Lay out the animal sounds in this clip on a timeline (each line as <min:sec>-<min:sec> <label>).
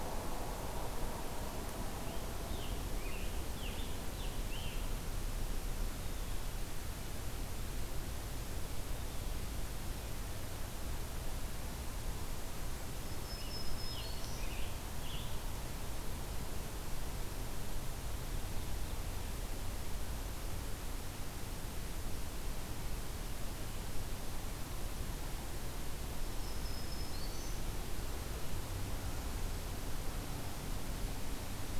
0:01.9-0:04.9 Scarlet Tanager (Piranga olivacea)
0:12.9-0:14.6 Black-throated Green Warbler (Setophaga virens)
0:13.2-0:15.4 Scarlet Tanager (Piranga olivacea)
0:26.0-0:27.7 Black-throated Green Warbler (Setophaga virens)